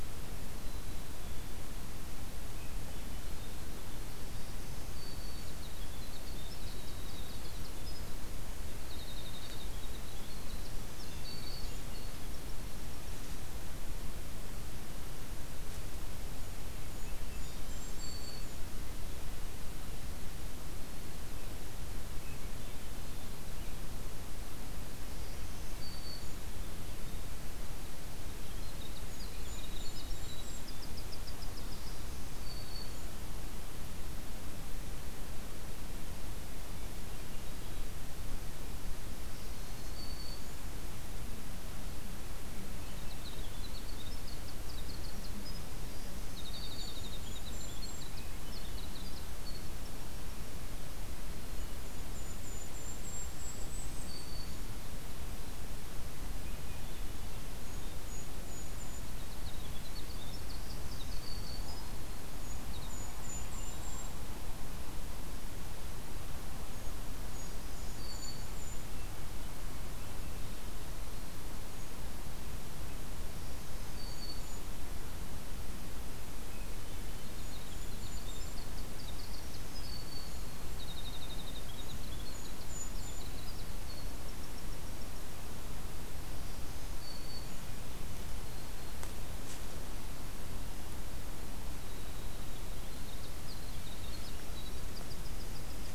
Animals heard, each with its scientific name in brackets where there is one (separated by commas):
Winter Wren (Troglodytes hiemalis), Golden-crowned Kinglet (Regulus satrapa), Black-capped Chickadee (Poecile atricapillus), Black-throated Green Warbler (Setophaga virens), Swainson's Thrush (Catharus ustulatus)